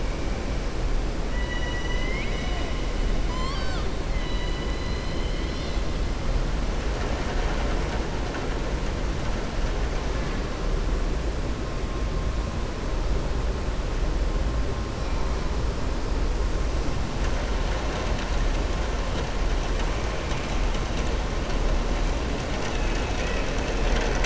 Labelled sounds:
1.3	2.7	killer whale, southern resident, 1.0 to 5.9 kHz
3.2	3.9	killer whale, southern resident, 0.80 to 7.6 kHz

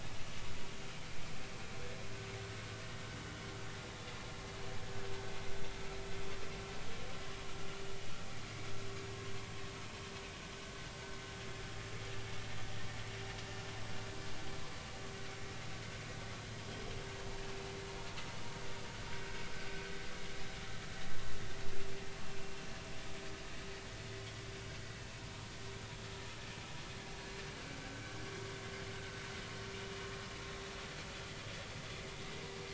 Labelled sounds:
27.9	28.2	vessel noise, 1.5 to 1.7 kHz

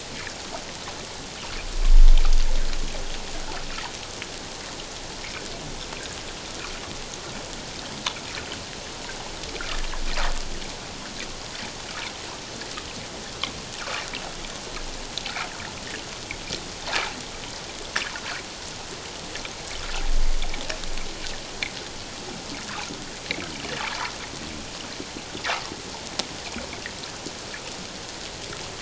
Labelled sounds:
23.9	24.1	water noise, 0.84 to 1.4 kHz

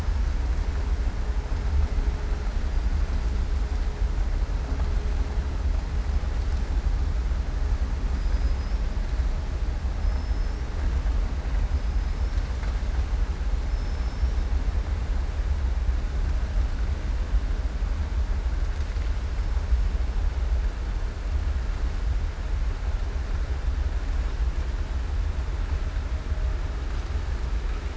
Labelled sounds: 8.1	8.8	killer whale, southern resident, 4.6 to 5.9 kHz
10.0	10.6	killer whale, southern resident, 5.1 to 5.6 kHz
13.7	14.4	killer whale, southern resident, 5.2 to 5.7 kHz

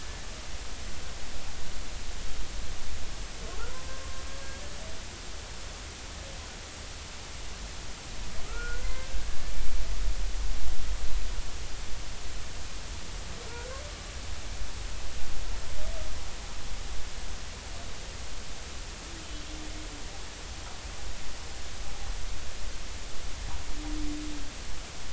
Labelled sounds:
3.7	4.0	humpback whale, 0.96 to 1.1 kHz
8.4	9.3	humpback whale, 0.99 to 2.1 kHz

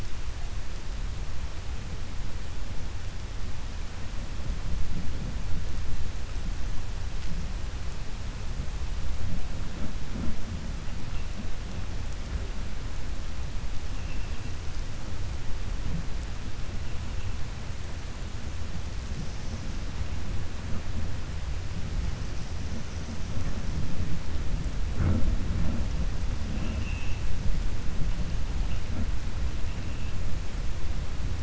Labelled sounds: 26.5	27.2	vessel noise, 2.5 to 3.3 kHz

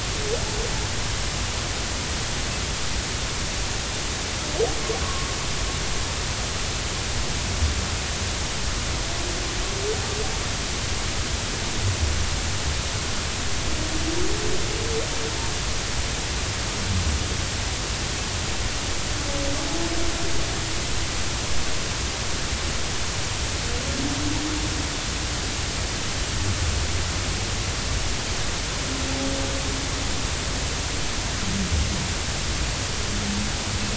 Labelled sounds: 5.0	5.3	humpback whale, 1.0 to 1.2 kHz

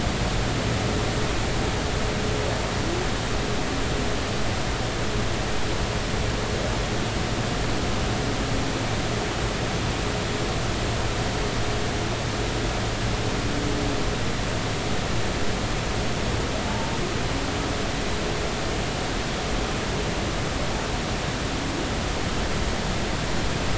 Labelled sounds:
16.7	16.9	humpback whale, 0.83 to 0.96 kHz

